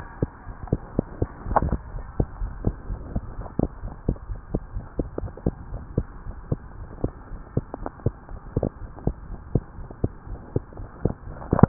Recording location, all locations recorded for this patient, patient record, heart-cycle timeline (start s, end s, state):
pulmonary valve (PV)
aortic valve (AV)+pulmonary valve (PV)+tricuspid valve (TV)+mitral valve (MV)
#Age: Child
#Sex: Female
#Height: 98.0 cm
#Weight: 17.66 kg
#Pregnancy status: False
#Murmur: Absent
#Murmur locations: nan
#Most audible location: nan
#Systolic murmur timing: nan
#Systolic murmur shape: nan
#Systolic murmur grading: nan
#Systolic murmur pitch: nan
#Systolic murmur quality: nan
#Diastolic murmur timing: nan
#Diastolic murmur shape: nan
#Diastolic murmur grading: nan
#Diastolic murmur pitch: nan
#Diastolic murmur quality: nan
#Outcome: Abnormal
#Campaign: 2015 screening campaign
0.00	2.39	unannotated
2.39	2.53	S1
2.53	2.62	systole
2.62	2.76	S2
2.76	2.88	diastole
2.88	3.00	S1
3.00	3.12	systole
3.12	3.24	S2
3.24	3.38	diastole
3.38	3.48	S1
3.48	3.58	systole
3.58	3.70	S2
3.70	3.84	diastole
3.84	3.94	S1
3.94	4.06	systole
4.06	4.18	S2
4.18	4.30	diastole
4.30	4.40	S1
4.40	4.52	systole
4.52	4.62	S2
4.62	4.74	diastole
4.74	4.86	S1
4.86	4.98	systole
4.98	5.08	S2
5.08	5.22	diastole
5.22	5.34	S1
5.34	5.44	systole
5.44	5.54	S2
5.54	5.70	diastole
5.70	5.82	S1
5.82	5.94	systole
5.94	6.08	S2
6.08	6.25	diastole
6.25	6.36	S1
6.36	6.48	systole
6.48	6.62	S2
6.62	6.77	diastole
6.77	6.88	S1
6.88	7.00	systole
7.00	7.14	S2
7.14	7.31	diastole
7.31	7.42	S1
7.42	7.54	systole
7.54	7.64	S2
7.64	7.80	diastole
7.80	7.90	S1
7.90	8.02	systole
8.02	8.14	S2
8.14	8.29	diastole
8.29	8.39	S1
8.39	8.52	systole
8.52	8.66	S2
8.66	8.78	diastole
8.78	8.92	S1
8.92	9.04	systole
9.04	9.16	S2
9.16	9.28	diastole
9.28	9.40	S1
9.40	9.52	systole
9.52	9.64	S2
9.64	9.77	diastole
9.77	9.87	S1
9.87	10.02	systole
10.02	10.14	S2
10.14	10.28	diastole
10.28	10.40	S1
10.40	10.52	systole
10.52	10.64	S2
10.64	10.77	diastole
10.77	10.90	S1
10.90	11.02	systole
11.02	11.14	S2
11.14	11.25	diastole
11.25	11.34	S1
11.34	11.68	unannotated